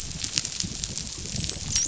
{"label": "biophony, dolphin", "recorder": "SoundTrap 500"}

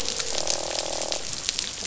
{"label": "biophony, croak", "recorder": "SoundTrap 500"}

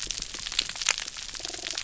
{"label": "biophony", "recorder": "SoundTrap 300"}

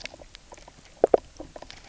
{"label": "biophony, knock croak", "recorder": "SoundTrap 300"}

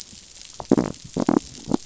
{"label": "biophony", "recorder": "SoundTrap 500"}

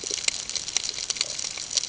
{"label": "ambient", "recorder": "HydroMoth"}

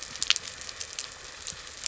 {"label": "anthrophony, boat engine", "recorder": "SoundTrap 300"}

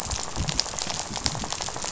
{"label": "biophony, rattle", "recorder": "SoundTrap 500"}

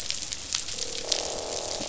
{"label": "biophony, croak", "recorder": "SoundTrap 500"}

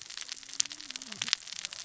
{"label": "biophony, cascading saw", "recorder": "SoundTrap 600 or HydroMoth"}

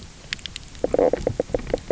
{"label": "biophony, knock croak", "recorder": "SoundTrap 300"}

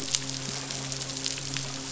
{"label": "biophony, midshipman", "recorder": "SoundTrap 500"}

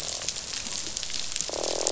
{"label": "biophony, croak", "recorder": "SoundTrap 500"}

